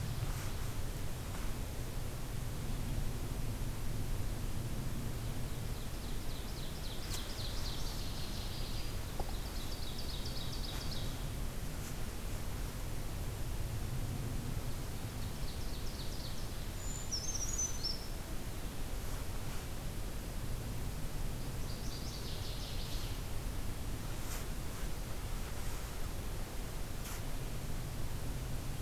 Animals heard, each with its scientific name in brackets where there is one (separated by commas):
Ovenbird (Seiurus aurocapilla), Northern Waterthrush (Parkesia noveboracensis), Brown Creeper (Certhia americana)